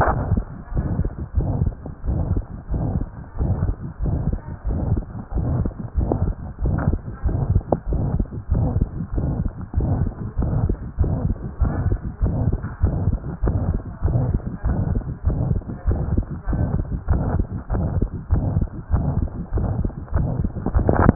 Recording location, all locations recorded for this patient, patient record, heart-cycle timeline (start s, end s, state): mitral valve (MV)
aortic valve (AV)+pulmonary valve (PV)+tricuspid valve (TV)+mitral valve (MV)
#Age: Child
#Sex: Female
#Height: 103.0 cm
#Weight: 13.1 kg
#Pregnancy status: False
#Murmur: Present
#Murmur locations: aortic valve (AV)+mitral valve (MV)+pulmonary valve (PV)+tricuspid valve (TV)
#Most audible location: tricuspid valve (TV)
#Systolic murmur timing: Holosystolic
#Systolic murmur shape: Diamond
#Systolic murmur grading: III/VI or higher
#Systolic murmur pitch: High
#Systolic murmur quality: Harsh
#Diastolic murmur timing: nan
#Diastolic murmur shape: nan
#Diastolic murmur grading: nan
#Diastolic murmur pitch: nan
#Diastolic murmur quality: nan
#Outcome: Abnormal
#Campaign: 2015 screening campaign
0.00	0.69	unannotated
0.69	0.85	S1
0.85	1.00	systole
1.00	1.12	S2
1.12	1.33	diastole
1.33	1.47	S1
1.47	1.59	systole
1.59	1.74	S2
1.74	2.00	diastole
2.00	2.17	S1
2.17	2.28	systole
2.28	2.42	S2
2.42	2.65	diastole
2.65	2.80	S1
2.80	2.94	systole
2.94	3.06	S2
3.06	3.34	diastole
3.34	3.51	S1
3.51	3.59	systole
3.59	3.76	S2
3.76	3.99	diastole
3.99	4.14	S1
4.14	4.26	systole
4.26	4.40	S2
4.40	4.62	diastole
4.62	4.78	S1
4.78	4.90	systole
4.90	5.04	S2
5.04	5.29	diastole
5.29	5.46	S1
5.46	5.58	systole
5.58	5.72	S2
5.72	5.92	diastole
5.92	6.07	S1
6.07	6.20	systole
6.20	6.34	S2
6.34	6.57	diastole
6.57	6.73	S1
6.73	6.84	systole
6.84	7.00	S2
7.00	7.22	diastole
7.22	7.37	S1
7.37	7.48	systole
7.48	7.62	S2
7.62	7.86	diastole
7.86	8.00	S1
8.00	8.11	systole
8.11	8.26	S2
8.26	8.47	diastole
8.47	8.61	S1
8.61	8.73	systole
8.73	8.90	S2
8.90	9.10	diastole
9.10	9.25	S1
9.25	9.36	systole
9.36	9.50	S2
9.50	9.70	diastole
9.70	9.85	S1
9.85	9.98	systole
9.98	10.12	S2
10.12	10.34	diastole
10.34	10.47	S1
10.47	10.60	systole
10.60	10.76	S2
10.76	10.94	diastole
10.94	11.09	S1
11.09	11.20	systole
11.20	11.38	S2
11.38	11.56	diastole
11.56	11.71	S1
11.71	11.83	systole
11.83	11.98	S2
11.98	12.17	diastole
12.17	12.32	S1
12.32	12.42	systole
12.42	12.59	S2
12.59	12.79	diastole
12.79	12.92	S1
12.92	13.03	systole
13.03	13.18	S2
13.18	13.39	diastole
13.39	13.56	S1
13.56	13.66	systole
13.66	13.82	S2
13.82	14.00	diastole
14.00	14.14	S1
14.14	21.15	unannotated